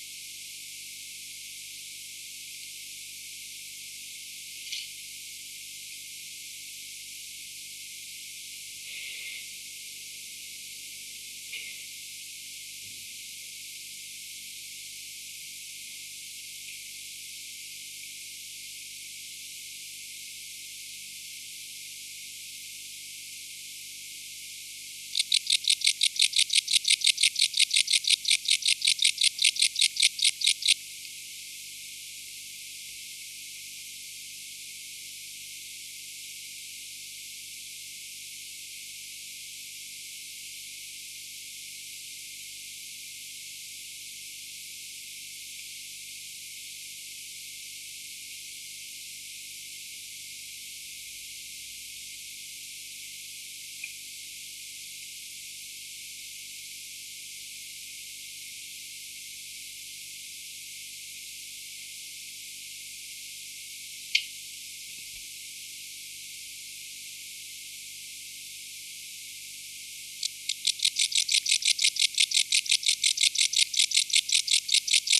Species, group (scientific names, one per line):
Pholidoptera stankoi
Orthoptera